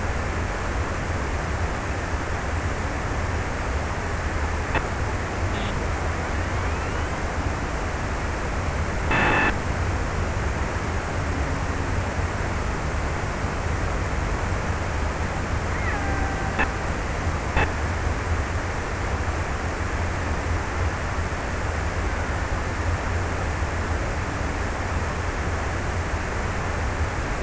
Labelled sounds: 15.3	17.2	killer whale, Bigg's (transient), 0.40 to 2.5 kHz

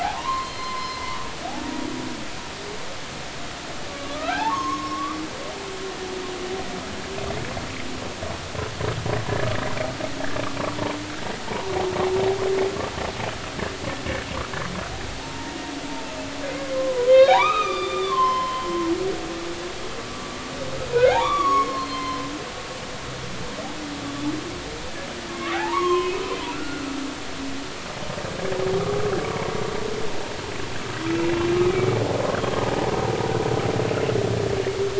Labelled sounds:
0.0	1.3	humpback whale, 0.80 to 4.3 kHz
3.9	5.2	humpback whale, 0.80 to 1.8 kHz
15.2	15.5	humpback whale, 0.86 to 0.96 kHz
16.5	18.7	humpback whale, 0.80 to 5.3 kHz
20.9	22.3	humpback whale, 0.80 to 4.4 kHz
25.3	26.2	humpback whale, 0.80 to 3.4 kHz
26.5	26.9	humpback whale, 1.3 to 1.5 kHz
31.2	32.0	humpback whale, 2.2 to 2.8 kHz
32.4	32.6	humpback whale, 3.2 to 3.3 kHz

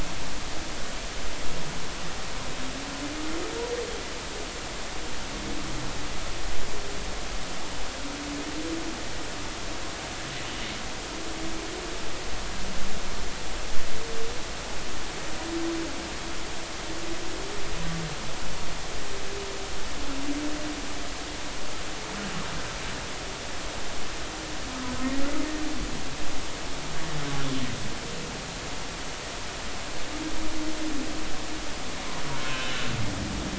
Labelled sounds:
32.4	32.8	humpback whale, 2.6 to 3.0 kHz

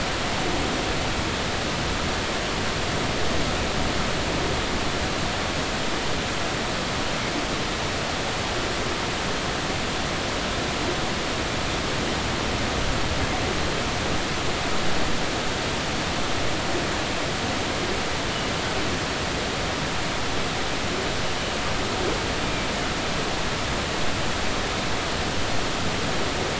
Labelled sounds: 22.4	22.7	Pacific white-sided dolphin, 2.3 to 2.5 kHz

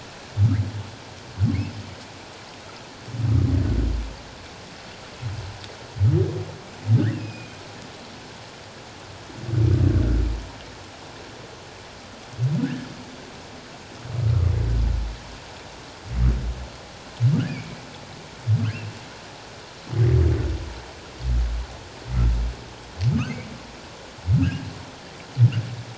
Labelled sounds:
7.1	7.6	humpback whale, 2.4 to 5.1 kHz
12.6	12.9	humpback whale, 1.4 to 1.8 kHz
17.5	17.8	humpback whale, 2.2 to 2.5 kHz
24.4	24.6	humpback whale, 1.2 to 1.7 kHz

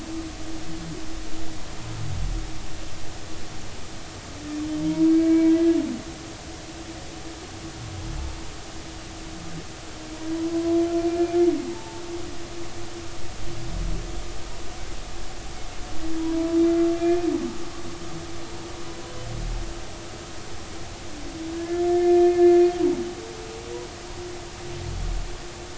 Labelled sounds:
4.9	5.7	humpback whale, 0.90 to 2.3 kHz
11.1	12.0	humpback whale, 0.83 to 2.4 kHz
16.2	16.5	humpback whale, 0.93 to 1.0 kHz
17.0	17.3	humpback whale, 2.3 to 2.5 kHz
21.5	22.5	humpback whale, 1.6 to 1.9 kHz

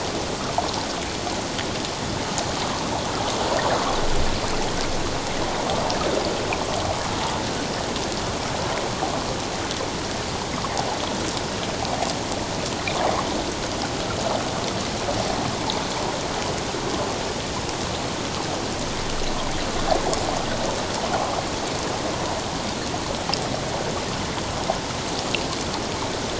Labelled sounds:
21.1	21.4	water noise, 0.78 to 0.88 kHz

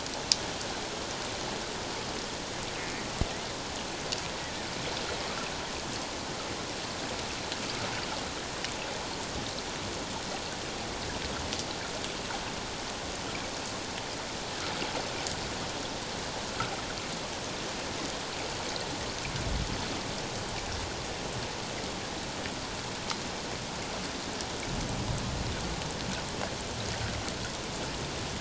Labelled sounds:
4.4	4.7	killer whale, offshore, call OFF07, 1.7 to 2.0 kHz

